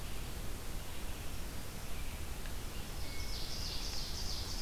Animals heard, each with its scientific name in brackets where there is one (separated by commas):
Hermit Thrush (Catharus guttatus), Ovenbird (Seiurus aurocapilla)